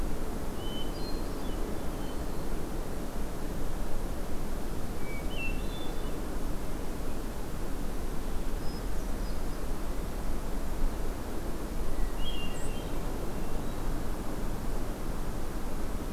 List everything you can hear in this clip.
Hermit Thrush, White-throated Sparrow